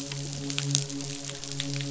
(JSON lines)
{"label": "biophony, midshipman", "recorder": "SoundTrap 500"}